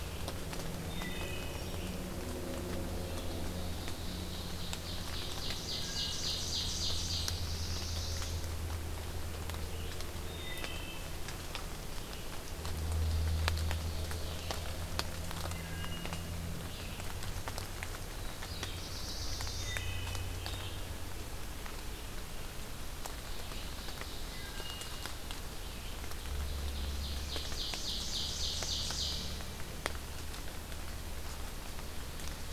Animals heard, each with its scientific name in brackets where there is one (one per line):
Wood Thrush (Hylocichla mustelina)
Red-eyed Vireo (Vireo olivaceus)
Black-throated Blue Warbler (Setophaga caerulescens)
Ovenbird (Seiurus aurocapilla)